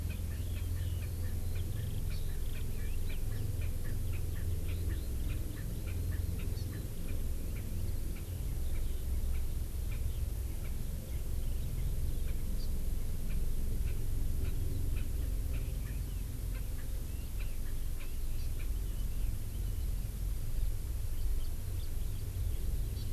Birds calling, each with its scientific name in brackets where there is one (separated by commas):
Erckel's Francolin (Pternistis erckelii), Red-billed Leiothrix (Leiothrix lutea), Eurasian Skylark (Alauda arvensis), Hawaii Amakihi (Chlorodrepanis virens), House Finch (Haemorhous mexicanus)